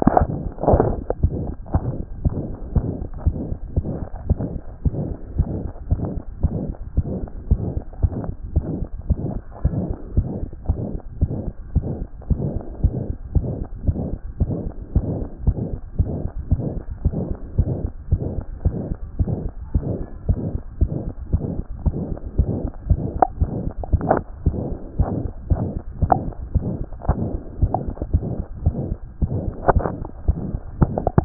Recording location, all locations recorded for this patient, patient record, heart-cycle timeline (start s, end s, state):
mitral valve (MV)
aortic valve (AV)+pulmonary valve (PV)+tricuspid valve (TV)+mitral valve (MV)
#Age: Child
#Sex: Male
#Height: 115.0 cm
#Weight: 17.1 kg
#Pregnancy status: False
#Murmur: Present
#Murmur locations: aortic valve (AV)+mitral valve (MV)+pulmonary valve (PV)+tricuspid valve (TV)
#Most audible location: pulmonary valve (PV)
#Systolic murmur timing: Mid-systolic
#Systolic murmur shape: Diamond
#Systolic murmur grading: III/VI or higher
#Systolic murmur pitch: Medium
#Systolic murmur quality: Harsh
#Diastolic murmur timing: nan
#Diastolic murmur shape: nan
#Diastolic murmur grading: nan
#Diastolic murmur pitch: nan
#Diastolic murmur quality: nan
#Outcome: Normal
#Campaign: 2014 screening campaign
0.00	1.22	unannotated
1.22	1.34	S1
1.34	1.44	systole
1.44	1.54	S2
1.54	1.74	diastole
1.74	1.84	S1
1.84	1.96	systole
1.96	2.04	S2
2.04	2.24	diastole
2.24	2.36	S1
2.36	2.46	systole
2.46	2.54	S2
2.54	2.74	diastole
2.74	2.88	S1
2.88	2.98	systole
2.98	3.06	S2
3.06	3.26	diastole
3.26	3.36	S1
3.36	3.48	systole
3.48	3.58	S2
3.58	3.76	diastole
3.76	3.86	S1
3.86	3.96	systole
3.96	4.06	S2
4.06	4.28	diastole
4.28	4.38	S1
4.38	4.52	systole
4.52	4.60	S2
4.60	4.86	diastole
4.86	4.98	S1
4.98	5.06	systole
5.06	5.14	S2
5.14	5.36	diastole
5.36	5.48	S1
5.48	5.60	systole
5.60	5.68	S2
5.68	5.90	diastole
5.90	6.04	S1
6.04	6.14	systole
6.14	6.22	S2
6.22	6.42	diastole
6.42	6.54	S1
6.54	6.64	systole
6.64	6.74	S2
6.74	6.96	diastole
6.96	7.06	S1
7.06	7.16	systole
7.16	7.28	S2
7.28	7.50	diastole
7.50	7.62	S1
7.62	7.74	systole
7.74	7.82	S2
7.82	8.02	diastole
8.02	8.12	S1
8.12	8.24	systole
8.24	8.34	S2
8.34	8.54	diastole
8.54	8.66	S1
8.66	8.78	systole
8.78	8.86	S2
8.86	9.08	diastole
9.08	9.18	S1
9.18	9.34	systole
9.34	9.40	S2
9.40	9.64	diastole
9.64	9.82	S1
9.82	9.88	systole
9.88	9.94	S2
9.94	10.16	diastole
10.16	10.28	S1
10.28	10.40	systole
10.40	10.48	S2
10.48	10.68	diastole
10.68	10.80	S1
10.80	10.92	systole
10.92	11.00	S2
11.00	11.20	diastole
11.20	11.34	S1
11.34	11.44	systole
11.44	11.52	S2
11.52	11.74	diastole
11.74	11.86	S1
11.86	11.98	systole
11.98	12.06	S2
12.06	12.30	diastole
12.30	12.44	S1
12.44	12.52	systole
12.52	12.60	S2
12.60	12.82	diastole
12.82	12.94	S1
12.94	13.08	systole
13.08	13.14	S2
13.14	13.34	diastole
13.34	13.48	S1
13.48	13.58	systole
13.58	13.66	S2
13.66	13.85	diastole
13.85	13.96	S1
13.96	14.12	systole
14.12	14.18	S2
14.18	14.40	diastole
14.40	14.54	S1
14.54	14.64	systole
14.64	14.72	S2
14.72	14.96	diastole
14.96	15.08	S1
15.08	15.18	systole
15.18	15.26	S2
15.26	15.46	diastole
15.46	15.56	S1
15.56	15.70	systole
15.70	15.78	S2
15.78	15.98	diastole
15.98	16.12	S1
16.12	16.22	systole
16.22	16.30	S2
16.30	16.50	diastole
16.50	16.62	S1
16.62	16.74	systole
16.74	16.82	S2
16.82	17.04	diastole
17.04	17.18	S1
17.18	17.28	systole
17.28	17.36	S2
17.36	17.58	diastole
17.58	17.72	S1
17.72	17.82	systole
17.82	17.90	S2
17.90	18.10	diastole
18.10	18.22	S1
18.22	18.34	systole
18.34	18.44	S2
18.44	18.64	diastole
18.64	18.76	S1
18.76	18.88	systole
18.88	18.96	S2
18.96	19.20	diastole
19.20	19.34	S1
19.34	19.44	systole
19.44	19.52	S2
19.52	19.76	diastole
19.76	19.84	S1
19.84	19.90	systole
19.90	20.04	S2
20.04	20.28	diastole
20.28	20.40	S1
20.40	20.50	systole
20.50	20.60	S2
20.60	20.80	diastole
20.80	20.92	S1
20.92	21.04	systole
21.04	21.12	S2
21.12	21.32	diastole
21.32	21.44	S1
21.44	21.56	systole
21.56	21.64	S2
21.64	21.84	diastole
21.84	21.96	S1
21.96	22.08	systole
22.08	22.16	S2
22.16	22.38	diastole
22.38	31.25	unannotated